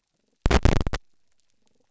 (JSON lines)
{"label": "biophony", "recorder": "SoundTrap 300"}